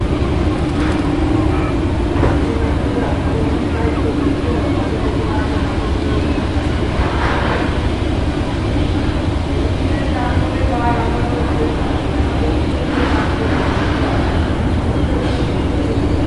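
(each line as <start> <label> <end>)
0.0 City sounds resonate in the distance. 16.3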